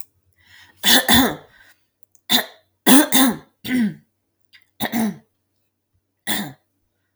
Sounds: Throat clearing